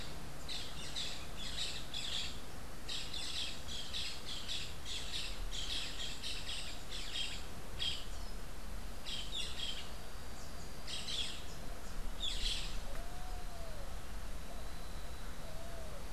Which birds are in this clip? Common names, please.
Boat-billed Flycatcher, Red-billed Pigeon